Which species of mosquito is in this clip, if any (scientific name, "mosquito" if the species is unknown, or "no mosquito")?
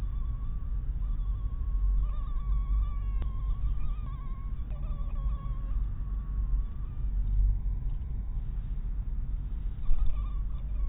mosquito